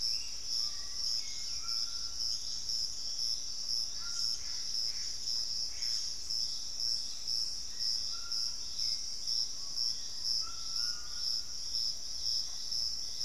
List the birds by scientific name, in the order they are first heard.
Turdus hauxwelli, Legatus leucophaius, Ramphastos tucanus, unidentified bird, Cercomacra cinerascens, Lipaugus vociferans, Formicarius analis